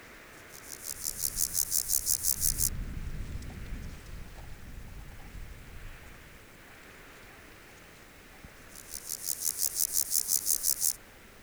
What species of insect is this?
Pseudochorthippus montanus